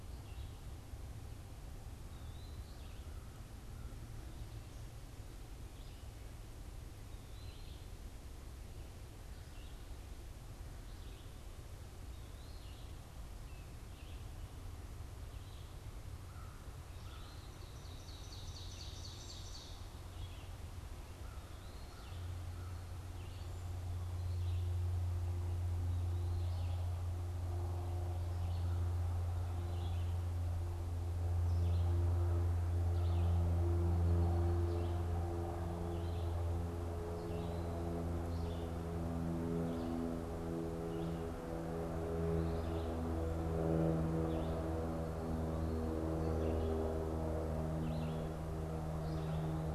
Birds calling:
Ovenbird (Seiurus aurocapilla), Red-eyed Vireo (Vireo olivaceus), Eastern Wood-Pewee (Contopus virens)

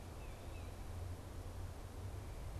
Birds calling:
Tufted Titmouse (Baeolophus bicolor)

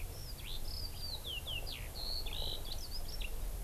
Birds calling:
Eurasian Skylark (Alauda arvensis)

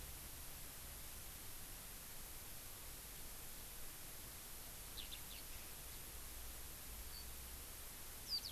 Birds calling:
Eurasian Skylark (Alauda arvensis)

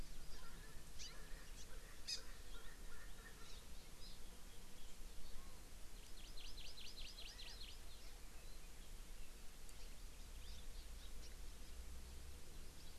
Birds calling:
Hawaii Amakihi (Chlorodrepanis virens), Erckel's Francolin (Pternistis erckelii), Chinese Hwamei (Garrulax canorus)

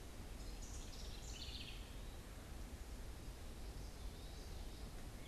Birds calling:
House Wren (Troglodytes aedon), Common Yellowthroat (Geothlypis trichas)

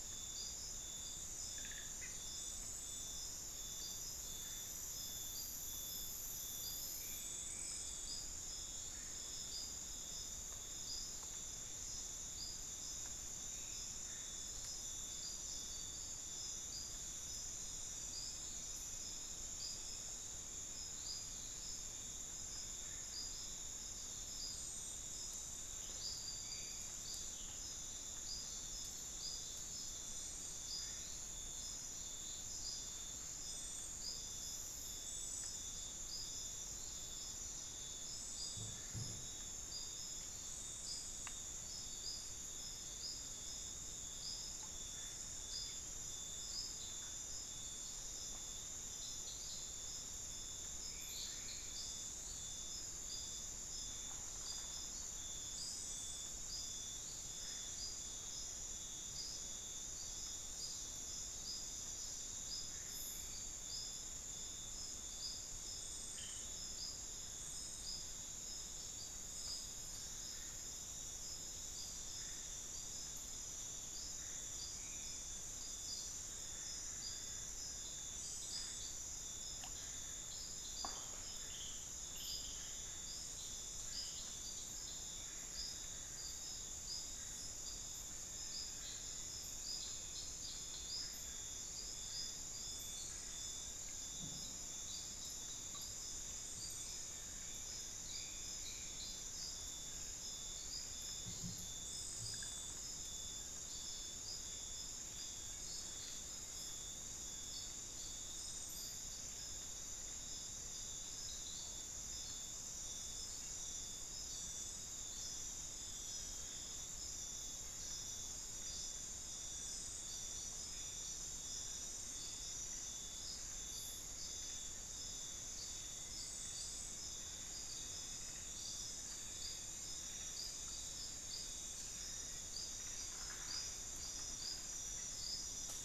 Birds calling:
Solitary Black Cacique (Cacicus solitarius)

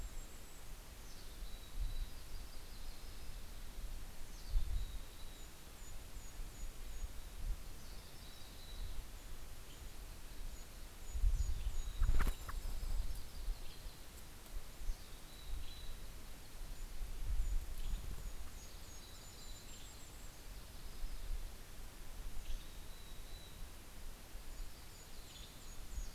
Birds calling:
Mountain Chickadee (Poecile gambeli), Golden-crowned Kinglet (Regulus satrapa), American Robin (Turdus migratorius), Yellow-rumped Warbler (Setophaga coronata), Western Tanager (Piranga ludoviciana)

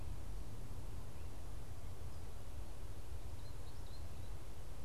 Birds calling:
American Goldfinch (Spinus tristis)

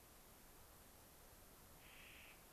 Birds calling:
Clark's Nutcracker (Nucifraga columbiana)

